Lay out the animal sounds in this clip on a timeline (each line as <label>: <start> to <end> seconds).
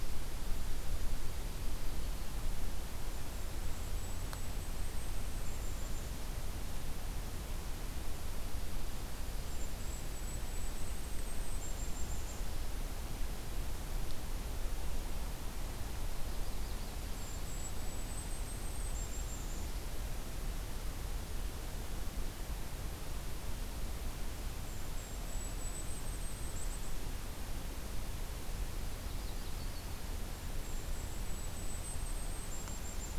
Golden-crowned Kinglet (Regulus satrapa): 2.9 to 6.2 seconds
Golden-crowned Kinglet (Regulus satrapa): 9.3 to 12.5 seconds
Yellow-rumped Warbler (Setophaga coronata): 16.0 to 17.5 seconds
Golden-crowned Kinglet (Regulus satrapa): 16.9 to 19.9 seconds
Golden-crowned Kinglet (Regulus satrapa): 24.4 to 26.9 seconds
Yellow-rumped Warbler (Setophaga coronata): 28.6 to 29.9 seconds
Golden-crowned Kinglet (Regulus satrapa): 30.4 to 33.2 seconds